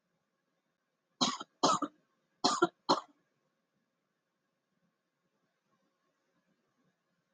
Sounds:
Cough